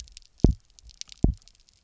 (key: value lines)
label: biophony, double pulse
recorder: SoundTrap 300